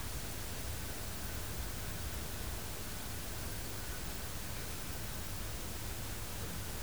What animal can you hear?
Parnassiana parnassica, an orthopteran